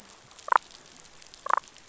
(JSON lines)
{"label": "biophony, damselfish", "recorder": "SoundTrap 500"}